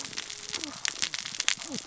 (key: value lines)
label: biophony, cascading saw
recorder: SoundTrap 600 or HydroMoth